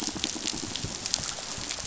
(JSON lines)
{"label": "biophony, pulse", "recorder": "SoundTrap 500"}